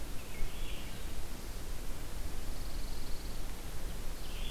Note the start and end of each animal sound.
[0.00, 0.68] American Robin (Turdus migratorius)
[0.21, 4.50] Red-eyed Vireo (Vireo olivaceus)
[2.29, 3.49] Pine Warbler (Setophaga pinus)
[3.98, 4.50] Ovenbird (Seiurus aurocapilla)

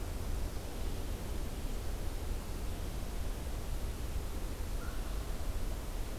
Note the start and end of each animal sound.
[4.72, 4.99] American Crow (Corvus brachyrhynchos)

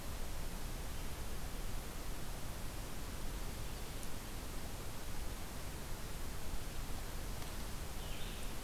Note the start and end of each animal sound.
[7.86, 8.64] Yellow-bellied Sapsucker (Sphyrapicus varius)

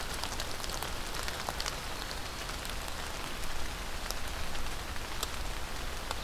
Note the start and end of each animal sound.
[1.68, 2.63] Black-throated Green Warbler (Setophaga virens)

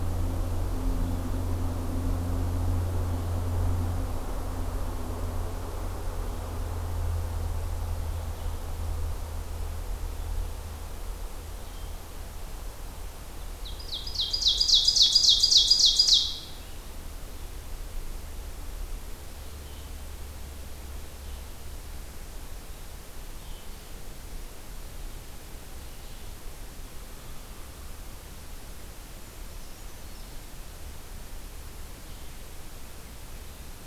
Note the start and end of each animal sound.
[13.51, 16.66] Ovenbird (Seiurus aurocapilla)
[19.47, 33.86] Red-eyed Vireo (Vireo olivaceus)
[29.03, 30.19] Brown Creeper (Certhia americana)

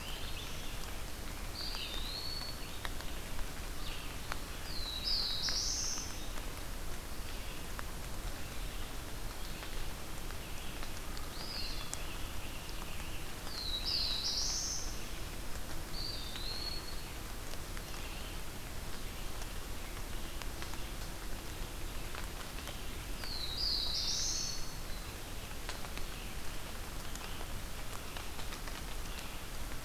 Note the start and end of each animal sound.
[0.00, 0.72] Black-throated Green Warbler (Setophaga virens)
[0.00, 29.84] Red-eyed Vireo (Vireo olivaceus)
[1.25, 2.72] Eastern Wood-Pewee (Contopus virens)
[4.62, 6.26] Black-throated Blue Warbler (Setophaga caerulescens)
[11.18, 11.91] Eastern Wood-Pewee (Contopus virens)
[13.18, 14.88] Black-throated Blue Warbler (Setophaga caerulescens)
[15.73, 16.95] Eastern Wood-Pewee (Contopus virens)
[23.00, 24.53] Black-throated Blue Warbler (Setophaga caerulescens)
[23.81, 24.83] Eastern Wood-Pewee (Contopus virens)

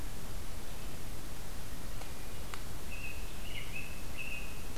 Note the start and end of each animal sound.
[2.74, 4.78] American Robin (Turdus migratorius)

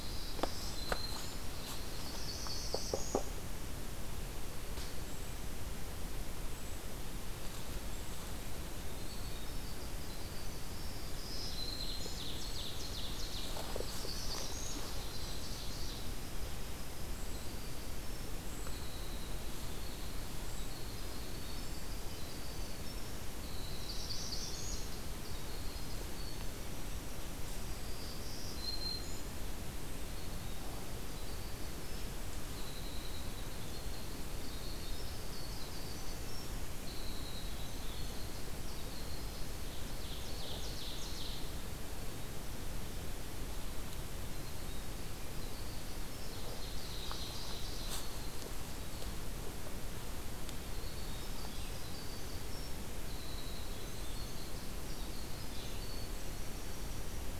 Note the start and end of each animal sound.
[0.00, 1.58] Black-throated Green Warbler (Setophaga virens)
[0.45, 0.89] Golden-crowned Kinglet (Regulus satrapa)
[1.45, 3.46] Northern Parula (Setophaga americana)
[2.55, 3.08] Golden-crowned Kinglet (Regulus satrapa)
[5.05, 5.39] Golden-crowned Kinglet (Regulus satrapa)
[6.37, 7.07] Golden-crowned Kinglet (Regulus satrapa)
[7.84, 8.26] Golden-crowned Kinglet (Regulus satrapa)
[8.29, 11.21] Winter Wren (Troglodytes hiemalis)
[8.89, 9.26] Golden-crowned Kinglet (Regulus satrapa)
[11.04, 12.27] Black-throated Green Warbler (Setophaga virens)
[11.76, 13.76] Ovenbird (Seiurus aurocapilla)
[13.53, 14.94] Northern Parula (Setophaga americana)
[14.30, 16.46] Ovenbird (Seiurus aurocapilla)
[16.74, 28.40] Winter Wren (Troglodytes hiemalis)
[23.55, 24.97] Northern Parula (Setophaga americana)
[27.62, 29.53] Black-throated Green Warbler (Setophaga virens)
[30.73, 39.75] Winter Wren (Troglodytes hiemalis)
[39.84, 41.73] Ovenbird (Seiurus aurocapilla)
[44.15, 49.25] Winter Wren (Troglodytes hiemalis)
[45.97, 48.24] Ovenbird (Seiurus aurocapilla)
[50.19, 57.39] Winter Wren (Troglodytes hiemalis)

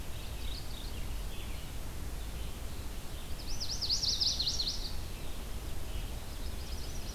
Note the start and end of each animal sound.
[0.00, 1.10] Mourning Warbler (Geothlypis philadelphia)
[0.00, 7.14] Red-eyed Vireo (Vireo olivaceus)
[3.23, 5.06] Chestnut-sided Warbler (Setophaga pensylvanica)
[6.10, 7.14] Magnolia Warbler (Setophaga magnolia)

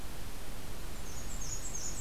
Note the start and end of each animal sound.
[0.77, 2.01] Black-and-white Warbler (Mniotilta varia)

